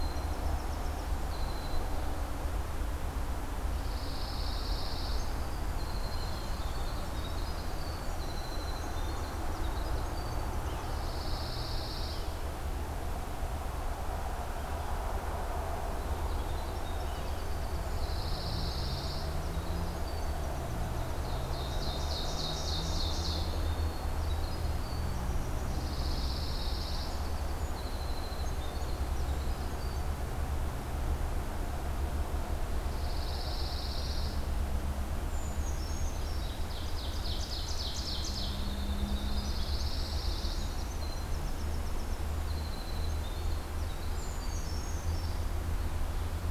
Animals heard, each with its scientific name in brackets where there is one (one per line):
Brown Creeper (Certhia americana)
Pine Warbler (Setophaga pinus)
Winter Wren (Troglodytes hiemalis)
Ovenbird (Seiurus aurocapilla)